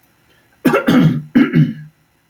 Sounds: Throat clearing